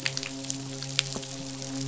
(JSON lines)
{"label": "biophony, midshipman", "recorder": "SoundTrap 500"}